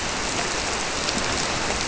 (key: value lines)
label: biophony
recorder: SoundTrap 300